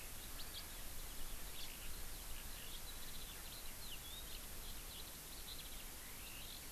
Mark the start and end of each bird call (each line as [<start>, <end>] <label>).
[0.00, 6.71] Eurasian Skylark (Alauda arvensis)